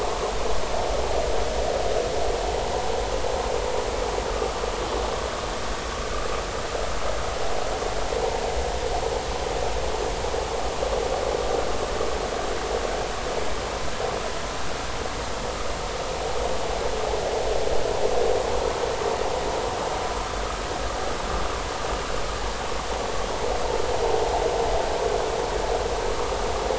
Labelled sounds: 4.3	4.6	vessel noise, 1.1 to 1.3 kHz

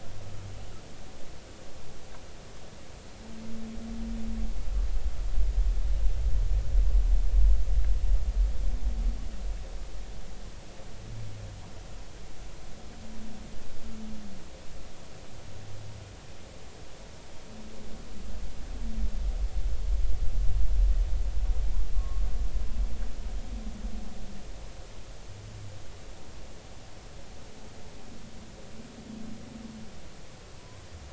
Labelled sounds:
21.9	22.2	humpback whale, 1.0 to 1.2 kHz
30.6	30.8	humpback whale, 0.90 to 1.1 kHz

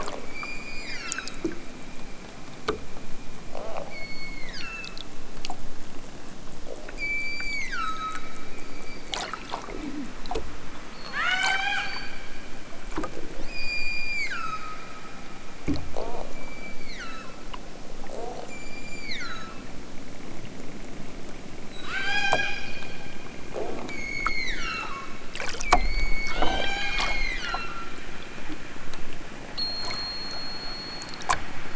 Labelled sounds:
0.2	1.5	killer whale, southern Alaska resident, 0.87 to 8.0 kHz
3.8	5.1	killer whale, southern Alaska resident, 1.1 to 8.0 kHz
6.9	8.3	killer whale, southern Alaska resident, 0.87 to 8.0 kHz
10.9	12.1	killer whale, southern Alaska resident, 0.46 to 8.0 kHz
13.4	14.9	killer whale, southern Alaska resident, 0.96 to 8.0 kHz
16.2	17.5	killer whale, southern Alaska resident, 1.0 to 8.0 kHz
18.4	19.7	killer whale, southern Alaska resident, 1.1 to 8.0 kHz
21.7	22.8	killer whale, southern Alaska resident, 0.55 to 8.0 kHz
23.9	25.2	killer whale, southern Alaska resident, 0.73 to 8.0 kHz
25.7	27.9	killer whale, southern Alaska resident, 0.46 to 8.0 kHz

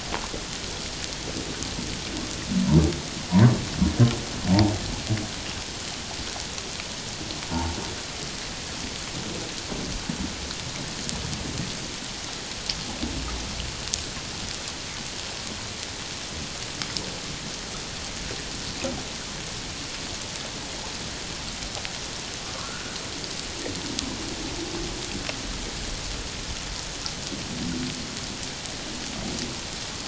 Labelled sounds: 3.3	3.5	humpback whale, 0.91 to 1.2 kHz
7.5	7.8	humpback whale, 0.78 to 0.97 kHz
22.5	23.0	humpback whale, 1.0 to 1.6 kHz

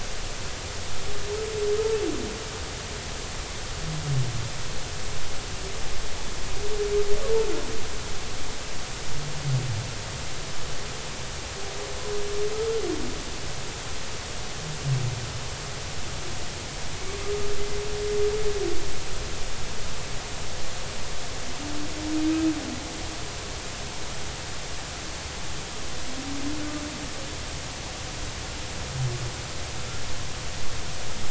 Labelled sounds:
12.5	12.8	humpback whale, 1.2 to 1.4 kHz

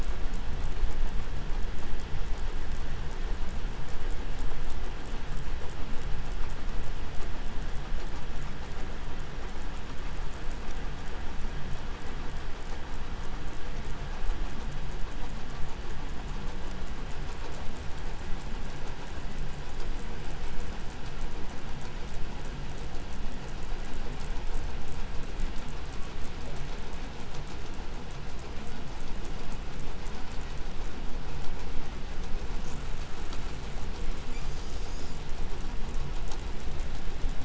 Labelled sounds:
34.1	35.3	killer whale, 1.7 to 7.7 kHz

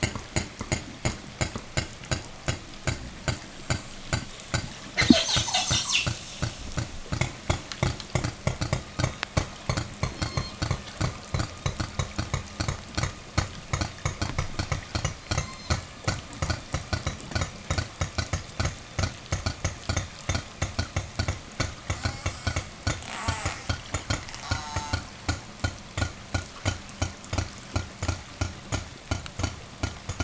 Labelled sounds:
3.4	4.3	killer whale, southern resident, 6.0 to 8.0 kHz
4.9	6.2	killer whale, southern resident, call S10, 0 to 8.0 kHz
9.9	10.8	killer whale, southern resident, 0.48 to 8.0 kHz
14.9	16.0	killer whale, southern resident, 0.48 to 8.0 kHz
21.8	24.1	killer whale, southern resident, 0 to 8.0 kHz
24.4	25.2	killer whale, southern resident, call S04, 0.15 to 8.0 kHz

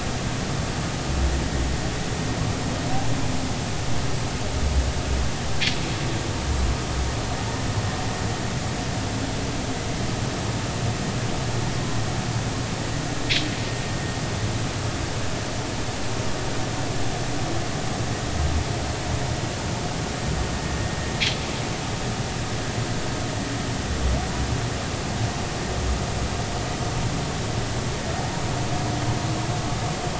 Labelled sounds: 11.8	12.0	humpback whale, 0.96 to 1.1 kHz

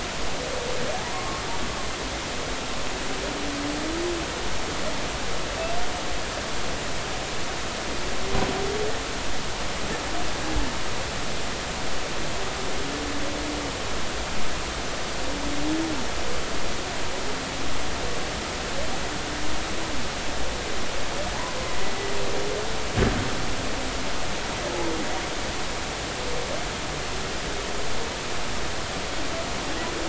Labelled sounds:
1.1	1.4	humpback whale, 1.0 to 1.2 kHz

